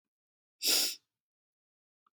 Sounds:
Sniff